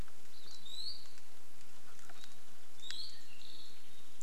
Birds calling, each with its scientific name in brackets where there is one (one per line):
Iiwi (Drepanis coccinea)
Apapane (Himatione sanguinea)
Hawaii Akepa (Loxops coccineus)